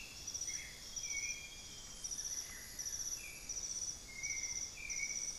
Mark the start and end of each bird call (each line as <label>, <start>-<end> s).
Amazonian Grosbeak (Cyanoloxia rothschildii), 0.0-2.3 s
White-necked Thrush (Turdus albicollis), 0.0-5.4 s
Amazonian Barred-Woodcreeper (Dendrocolaptes certhia), 1.9-3.3 s
unidentified bird, 4.2-4.9 s